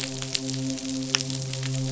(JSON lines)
{"label": "biophony, midshipman", "recorder": "SoundTrap 500"}